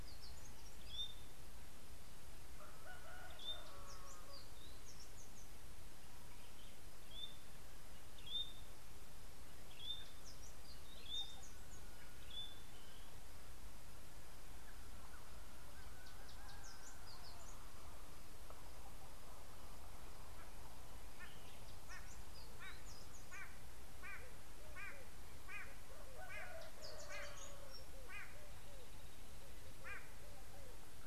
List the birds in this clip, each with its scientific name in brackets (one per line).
White-bellied Go-away-bird (Corythaixoides leucogaster)
White-browed Robin-Chat (Cossypha heuglini)